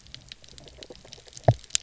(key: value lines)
label: biophony, double pulse
recorder: SoundTrap 300